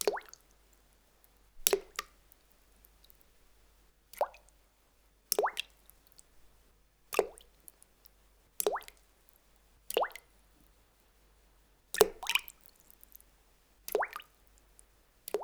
Do the drops fall into some liquid?
yes